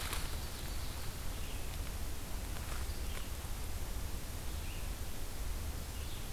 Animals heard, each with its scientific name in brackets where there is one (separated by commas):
Ovenbird (Seiurus aurocapilla), Red-eyed Vireo (Vireo olivaceus)